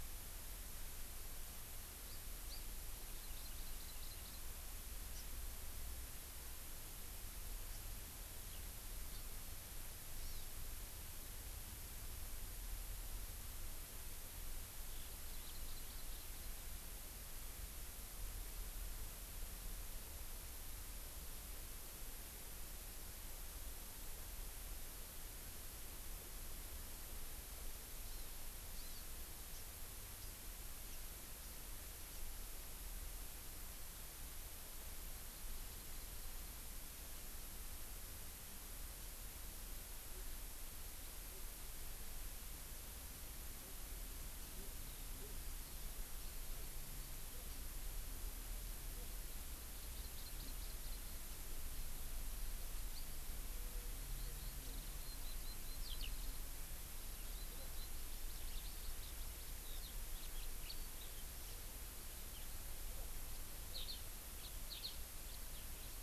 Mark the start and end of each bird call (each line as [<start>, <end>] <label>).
[2.09, 2.19] Hawaii Amakihi (Chlorodrepanis virens)
[2.49, 2.59] Hawaii Amakihi (Chlorodrepanis virens)
[3.29, 4.39] Hawaii Amakihi (Chlorodrepanis virens)
[7.69, 7.79] Hawaii Amakihi (Chlorodrepanis virens)
[9.09, 9.19] Hawaii Amakihi (Chlorodrepanis virens)
[10.19, 10.49] Hawaii Amakihi (Chlorodrepanis virens)
[14.89, 15.09] Eurasian Skylark (Alauda arvensis)
[15.29, 16.49] Hawaii Amakihi (Chlorodrepanis virens)
[28.09, 28.29] Hawaii Amakihi (Chlorodrepanis virens)
[28.79, 28.99] Hawaii Amakihi (Chlorodrepanis virens)
[29.49, 29.59] Hawaii Amakihi (Chlorodrepanis virens)
[30.19, 30.29] Hawaii Amakihi (Chlorodrepanis virens)
[32.09, 32.19] Hawaii Amakihi (Chlorodrepanis virens)
[35.49, 36.59] Hawaii Amakihi (Chlorodrepanis virens)
[44.79, 48.09] Eurasian Skylark (Alauda arvensis)
[49.79, 51.39] Hawaii Amakihi (Chlorodrepanis virens)
[52.89, 52.99] House Finch (Haemorhous mexicanus)
[54.09, 61.59] Eurasian Skylark (Alauda arvensis)
[63.69, 63.99] Eurasian Skylark (Alauda arvensis)
[64.39, 64.49] House Finch (Haemorhous mexicanus)
[64.69, 64.99] Eurasian Skylark (Alauda arvensis)
[65.29, 65.39] House Finch (Haemorhous mexicanus)